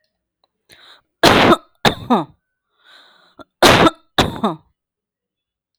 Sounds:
Cough